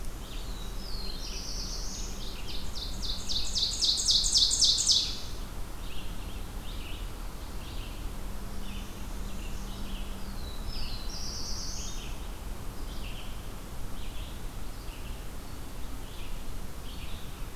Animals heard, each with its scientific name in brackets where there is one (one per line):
Northern Parula (Setophaga americana)
Red-eyed Vireo (Vireo olivaceus)
Ovenbird (Seiurus aurocapilla)
Black-throated Blue Warbler (Setophaga caerulescens)